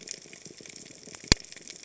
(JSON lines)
{"label": "biophony", "recorder": "HydroMoth"}